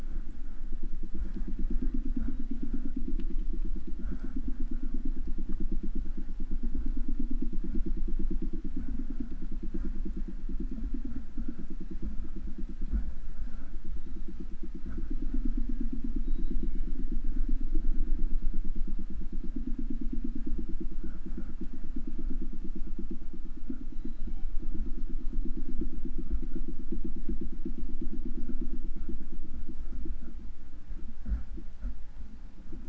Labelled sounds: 2.0	2.9	killer whale, southern resident, J pod, call S01, 1.9 to 4.1 kHz
13.8	14.6	killer whale, southern resident, J pod, call S01, 2.1 to 4.2 kHz
16.1	17.1	killer whale, southern resident, J pod, call S01, 1.8 to 4.9 kHz
23.9	24.7	killer whale, southern resident, J pod, call S01, 0.44 to 7.2 kHz

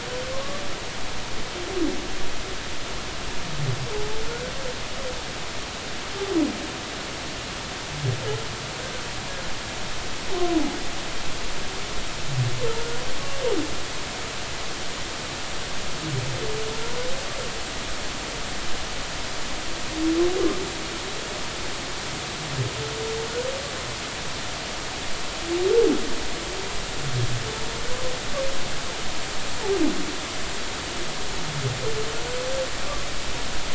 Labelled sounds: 0.3	0.6	humpback whale, 0.99 to 1.2 kHz

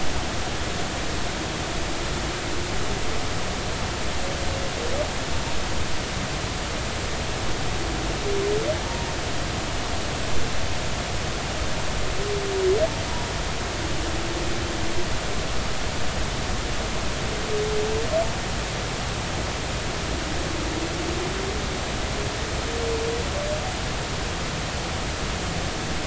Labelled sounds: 8.8	9.1	humpback whale, 0.83 to 0.99 kHz

